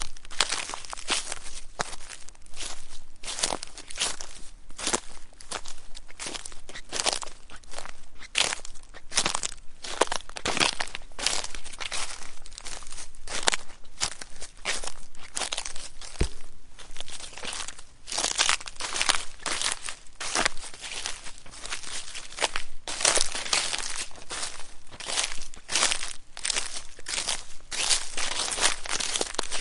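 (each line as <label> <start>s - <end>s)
Footsteps crunching leaves loudly in a repeating pattern. 0.0s - 29.6s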